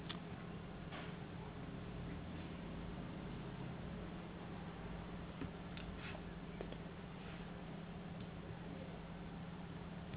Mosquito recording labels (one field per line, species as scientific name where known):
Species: no mosquito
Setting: insect culture